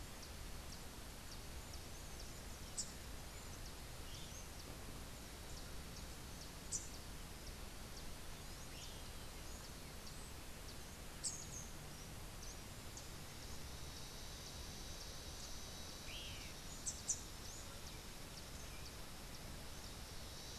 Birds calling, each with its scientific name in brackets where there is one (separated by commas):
Rufous-capped Warbler (Basileuterus rufifrons), Great Kiskadee (Pitangus sulphuratus)